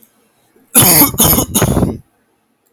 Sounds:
Cough